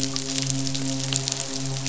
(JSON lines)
{"label": "biophony, midshipman", "recorder": "SoundTrap 500"}